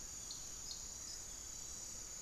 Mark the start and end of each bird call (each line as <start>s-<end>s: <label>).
0.0s-1.7s: Long-winged Antwren (Myrmotherula longipennis)
0.0s-2.2s: Hauxwell's Thrush (Turdus hauxwelli)
0.0s-2.2s: Piratic Flycatcher (Legatus leucophaius)